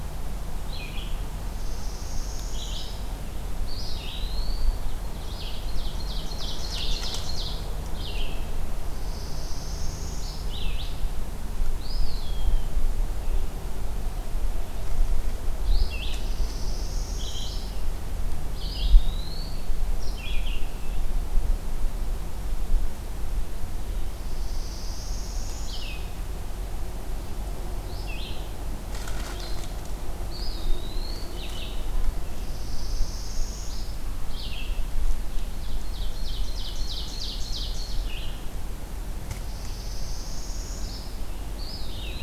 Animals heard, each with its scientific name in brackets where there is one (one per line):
Northern Parula (Setophaga americana)
Red-eyed Vireo (Vireo olivaceus)
Eastern Wood-Pewee (Contopus virens)
Ovenbird (Seiurus aurocapilla)